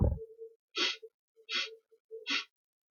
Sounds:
Sniff